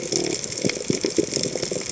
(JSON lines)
{"label": "biophony", "recorder": "HydroMoth"}